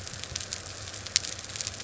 {"label": "anthrophony, boat engine", "recorder": "SoundTrap 300"}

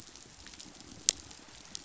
{"label": "biophony", "recorder": "SoundTrap 500"}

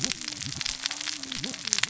{"label": "biophony, cascading saw", "recorder": "SoundTrap 600 or HydroMoth"}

